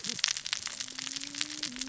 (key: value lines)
label: biophony, cascading saw
recorder: SoundTrap 600 or HydroMoth